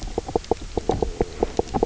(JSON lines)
{"label": "biophony, knock croak", "recorder": "SoundTrap 300"}